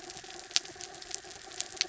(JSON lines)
{"label": "anthrophony, mechanical", "recorder": "SoundTrap 300"}